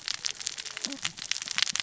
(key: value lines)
label: biophony, cascading saw
recorder: SoundTrap 600 or HydroMoth